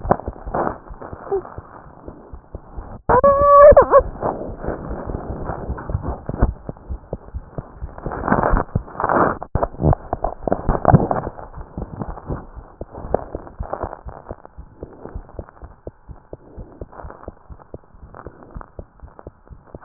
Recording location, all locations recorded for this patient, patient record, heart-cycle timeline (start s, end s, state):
pulmonary valve (PV)
aortic valve (AV)+pulmonary valve (PV)+mitral valve (MV)
#Age: Infant
#Sex: Female
#Height: 74.0 cm
#Weight: 9.015 kg
#Pregnancy status: False
#Murmur: Present
#Murmur locations: mitral valve (MV)+pulmonary valve (PV)
#Most audible location: mitral valve (MV)
#Systolic murmur timing: Early-systolic
#Systolic murmur shape: Plateau
#Systolic murmur grading: I/VI
#Systolic murmur pitch: Low
#Systolic murmur quality: Blowing
#Diastolic murmur timing: nan
#Diastolic murmur shape: nan
#Diastolic murmur grading: nan
#Diastolic murmur pitch: nan
#Diastolic murmur quality: nan
#Outcome: Normal
#Campaign: 2015 screening campaign
0.00	15.14	unannotated
15.14	15.24	S1
15.24	15.36	systole
15.36	15.44	S2
15.44	15.61	diastole
15.61	15.70	S1
15.70	15.85	systole
15.85	15.94	S2
15.94	16.08	diastole
16.08	16.14	S1
16.14	16.31	systole
16.31	16.37	S2
16.37	16.56	diastole
16.56	16.66	S1
16.66	16.78	systole
16.78	16.88	S2
16.88	17.02	diastole
17.02	17.13	S1
17.13	17.26	systole
17.26	17.32	S2
17.32	17.48	diastole
17.48	17.57	S1
17.57	17.73	systole
17.73	17.79	S2
17.79	18.01	diastole
18.01	18.08	S1
18.08	18.25	systole
18.25	18.29	S2
18.29	18.54	diastole
18.54	18.64	S1
18.64	18.76	systole
18.76	18.86	S2
18.86	19.01	diastole
19.01	19.11	S1
19.11	19.25	systole
19.25	19.33	S2
19.33	19.49	diastole
19.49	19.57	S1
19.57	19.72	systole
19.72	19.80	S2
19.80	19.84	unannotated